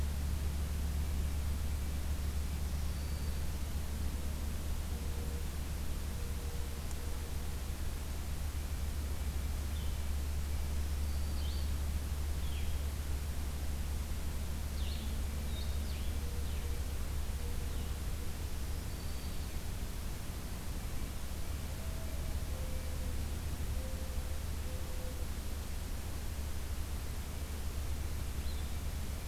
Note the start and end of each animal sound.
[2.29, 3.52] Black-throated Green Warbler (Setophaga virens)
[9.51, 17.88] Blue-headed Vireo (Vireo solitarius)
[10.82, 11.69] Black-throated Green Warbler (Setophaga virens)
[18.28, 19.49] Black-throated Green Warbler (Setophaga virens)
[21.61, 25.26] Mourning Dove (Zenaida macroura)
[28.23, 28.68] Blue-headed Vireo (Vireo solitarius)

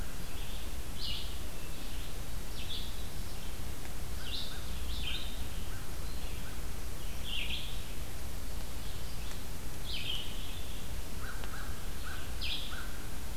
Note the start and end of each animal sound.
[0.00, 13.37] Red-eyed Vireo (Vireo olivaceus)
[4.00, 6.17] American Crow (Corvus brachyrhynchos)
[11.05, 13.37] American Crow (Corvus brachyrhynchos)

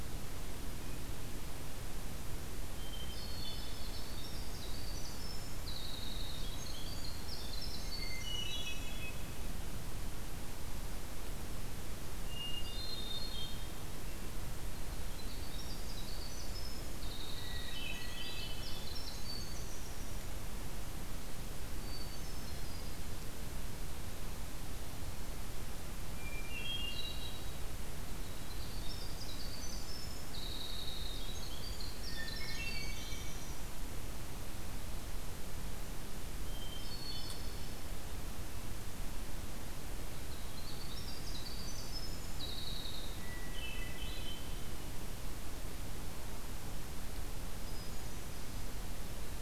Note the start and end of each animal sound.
[2.56, 4.45] Hermit Thrush (Catharus guttatus)
[2.98, 9.01] Winter Wren (Troglodytes hiemalis)
[7.83, 9.16] Hermit Thrush (Catharus guttatus)
[11.87, 13.84] Hermit Thrush (Catharus guttatus)
[14.90, 20.38] Winter Wren (Troglodytes hiemalis)
[17.35, 18.71] Hermit Thrush (Catharus guttatus)
[21.70, 23.03] Hermit Thrush (Catharus guttatus)
[26.03, 27.81] Hermit Thrush (Catharus guttatus)
[28.06, 33.75] Winter Wren (Troglodytes hiemalis)
[32.10, 33.38] Hermit Thrush (Catharus guttatus)
[36.50, 37.78] Hermit Thrush (Catharus guttatus)
[40.09, 43.29] Winter Wren (Troglodytes hiemalis)
[43.08, 44.66] Hermit Thrush (Catharus guttatus)
[47.53, 48.56] Hermit Thrush (Catharus guttatus)

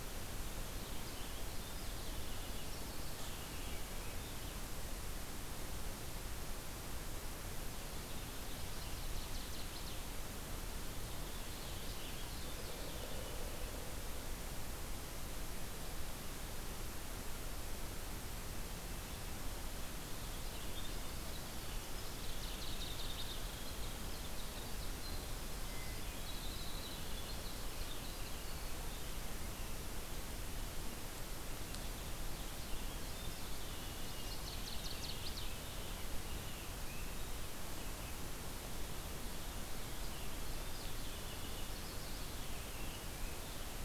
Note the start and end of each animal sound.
[0.96, 4.70] Winter Wren (Troglodytes hiemalis)
[8.07, 10.29] Northern Waterthrush (Parkesia noveboracensis)
[10.84, 13.83] Purple Finch (Haemorhous purpureus)
[19.73, 29.46] Winter Wren (Troglodytes hiemalis)
[21.83, 23.83] Northern Waterthrush (Parkesia noveboracensis)
[31.46, 38.26] Purple Finch (Haemorhous purpureus)
[33.81, 36.01] Northern Waterthrush (Parkesia noveboracensis)
[40.40, 43.84] Purple Finch (Haemorhous purpureus)

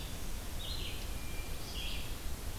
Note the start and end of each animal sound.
[0.00, 2.58] Red-eyed Vireo (Vireo olivaceus)
[1.06, 1.68] Hermit Thrush (Catharus guttatus)

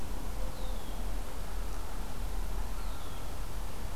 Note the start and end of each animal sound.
[0.50, 1.10] Red-winged Blackbird (Agelaius phoeniceus)
[2.58, 3.95] Common Loon (Gavia immer)
[2.66, 3.38] Red-winged Blackbird (Agelaius phoeniceus)

